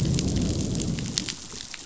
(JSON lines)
{"label": "biophony, growl", "recorder": "SoundTrap 500"}